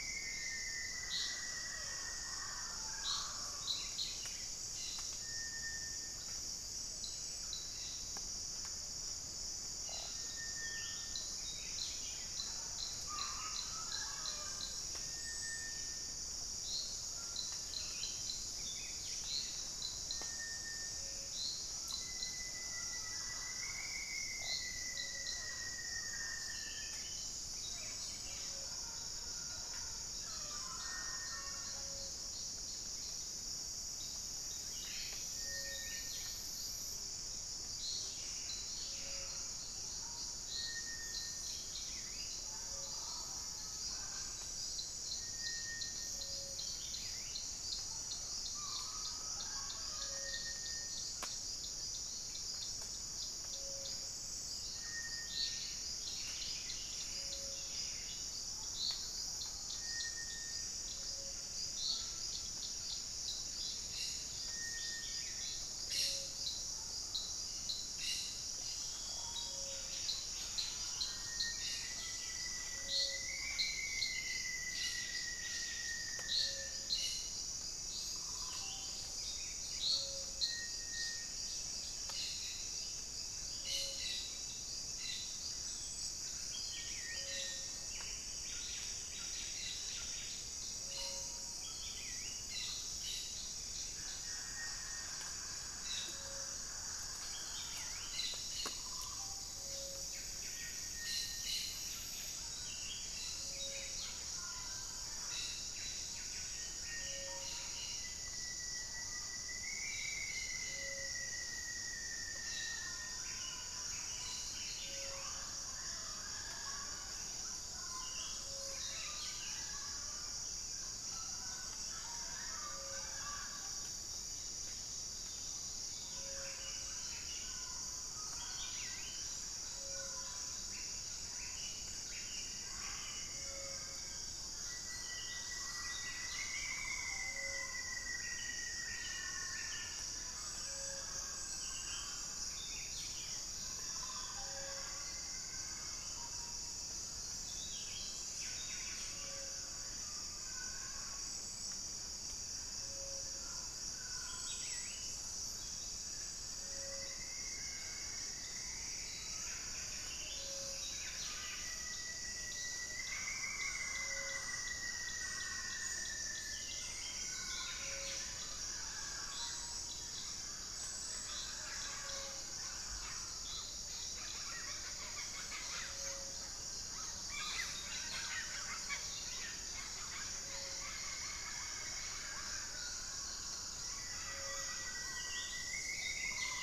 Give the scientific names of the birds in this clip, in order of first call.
Formicarius rufifrons, Cantorchilus leucotis, Leptotila rufaxilla, Saltator maximus, Lipaugus vociferans, Amazona farinosa, Brotogeris cyanoptera, Campylorhynchus turdinus, Rhytipterna simplex, Psarocolius angustifrons